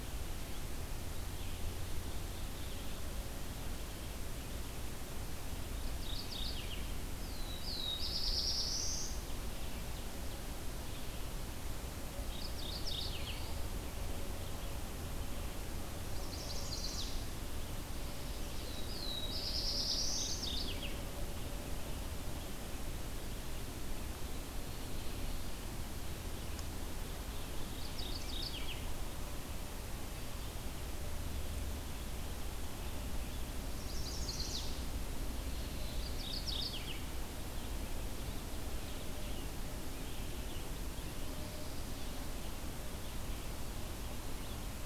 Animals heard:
Black-throated Blue Warbler (Setophaga caerulescens), Mourning Warbler (Geothlypis philadelphia), Chestnut-sided Warbler (Setophaga pensylvanica)

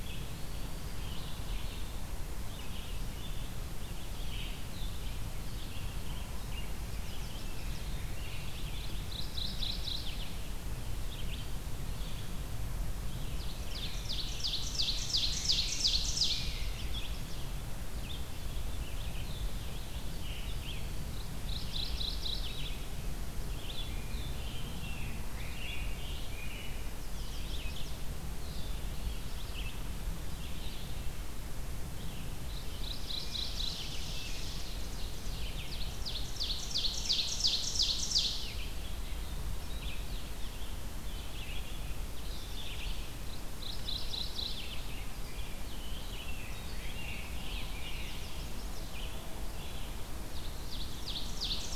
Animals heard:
Eastern Wood-Pewee (Contopus virens), Red-eyed Vireo (Vireo olivaceus), Ovenbird (Seiurus aurocapilla), Chestnut-sided Warbler (Setophaga pensylvanica), Rose-breasted Grosbeak (Pheucticus ludovicianus), Mourning Warbler (Geothlypis philadelphia)

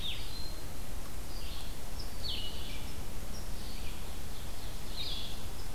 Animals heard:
Blue-headed Vireo (Vireo solitarius), Ovenbird (Seiurus aurocapilla)

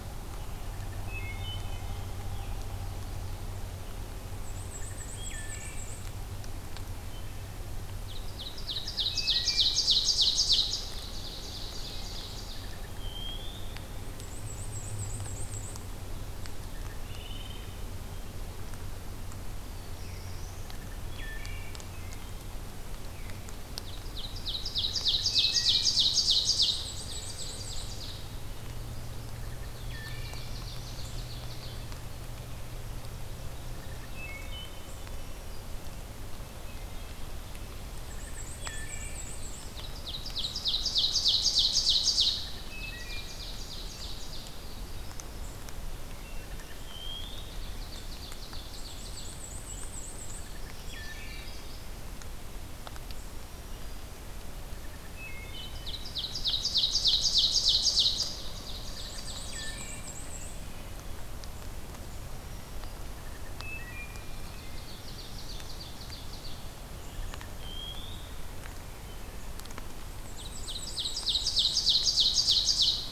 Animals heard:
Magnolia Warbler (Setophaga magnolia), Black-throated Blue Warbler (Setophaga caerulescens), Black-throated Green Warbler (Setophaga virens), Scarlet Tanager (Piranga olivacea), Ovenbird (Seiurus aurocapilla), Wood Thrush (Hylocichla mustelina), Black-and-white Warbler (Mniotilta varia)

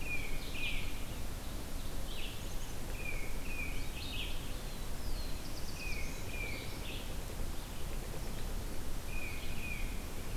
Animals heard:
Black-throated Blue Warbler (Setophaga caerulescens), Red-eyed Vireo (Vireo olivaceus), Tufted Titmouse (Baeolophus bicolor)

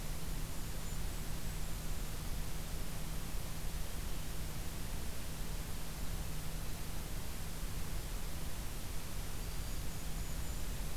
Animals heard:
Golden-crowned Kinglet (Regulus satrapa)

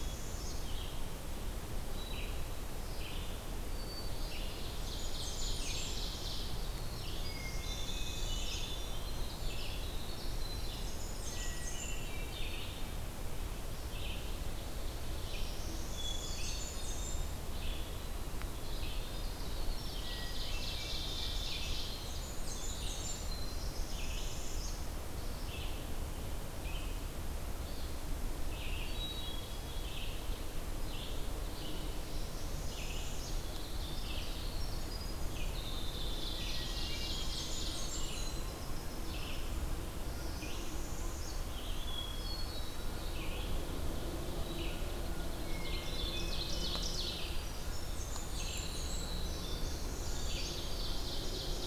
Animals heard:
Ovenbird (Seiurus aurocapilla), Hermit Thrush (Catharus guttatus), Red-eyed Vireo (Vireo olivaceus), Winter Wren (Troglodytes hiemalis), Blackburnian Warbler (Setophaga fusca), Northern Parula (Setophaga americana)

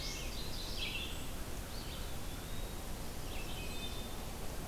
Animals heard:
Wood Thrush (Hylocichla mustelina), Eastern Wood-Pewee (Contopus virens), Red-eyed Vireo (Vireo olivaceus)

